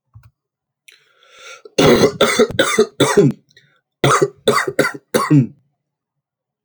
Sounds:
Cough